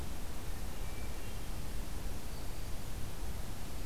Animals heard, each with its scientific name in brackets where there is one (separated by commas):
Black-throated Green Warbler (Setophaga virens), Hermit Thrush (Catharus guttatus)